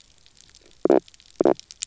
{"label": "biophony, knock croak", "recorder": "SoundTrap 300"}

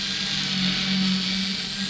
{"label": "anthrophony, boat engine", "recorder": "SoundTrap 500"}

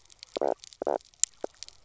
{"label": "biophony, knock croak", "recorder": "SoundTrap 300"}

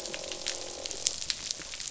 {"label": "biophony, croak", "recorder": "SoundTrap 500"}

